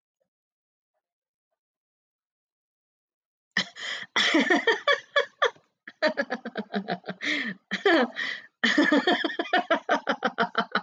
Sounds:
Laughter